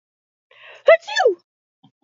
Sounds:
Sneeze